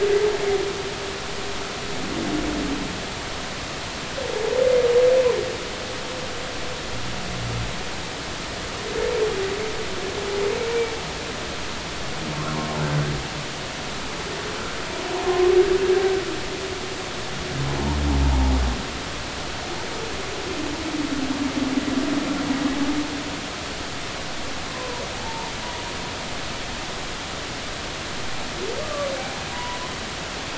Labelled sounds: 12.3	12.7	humpback whale, 1.0 to 1.4 kHz
15.2	15.5	humpback whale, 0.99 to 1.1 kHz
24.7	25.5	humpback whale, 0.80 to 1.1 kHz
28.8	29.1	humpback whale, 1.1 to 1.2 kHz
29.5	29.9	humpback whale, 0.93 to 1.1 kHz

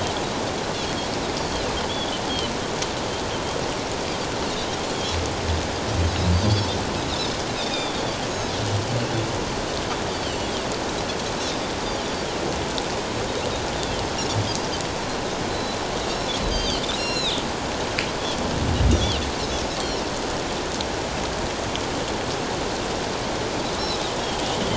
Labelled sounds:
1.9	2.1	Pacific white-sided dolphin, 3.2 to 3.5 kHz
6.3	8.0	Pacific white-sided dolphin, 3.3 to 5.4 kHz
10.2	10.5	Pacific white-sided dolphin, 2.7 to 4.5 kHz
13.8	14.0	Pacific white-sided dolphin, 3.0 to 3.7 kHz
15.5	17.3	Pacific white-sided dolphin, 2.4 to 8.0 kHz
18.9	19.2	Pacific white-sided dolphin, 2.7 to 3.8 kHz

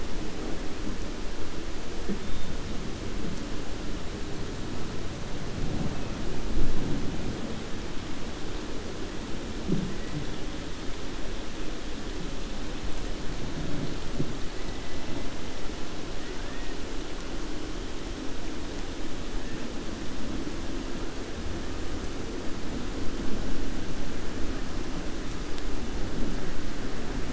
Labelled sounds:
16.2	16.7	killer whale, 0.89 to 2.6 kHz

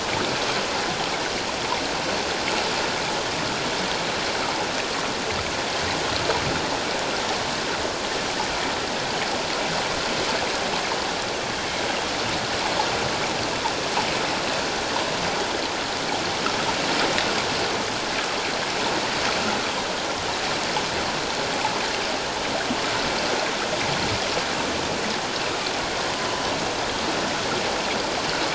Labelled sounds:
26.2	26.5	killer whale, northern resident, 2.9 to 3.1 kHz

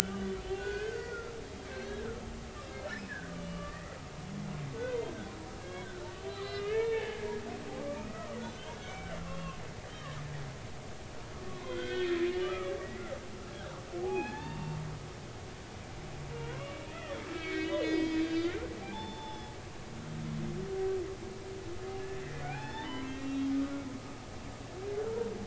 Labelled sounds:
0.6	2.2	humpback whale, 1.2 to 2.6 kHz
3.4	4.0	humpback whale, 1.1 to 2.9 kHz
4.8	7.3	humpback whale, 0.80 to 4.5 kHz
8.1	9.6	humpback whale, 1.0 to 3.3 kHz
11.5	13.1	humpback whale, 1.1 to 4.0 kHz
13.5	14.8	humpback whale, 0.80 to 3.7 kHz
16.3	18.5	humpback whale, 0.90 to 4.9 kHz
18.8	19.5	humpback whale, 0.80 to 5.3 kHz
22.1	23.9	humpback whale, 0.80 to 5.3 kHz

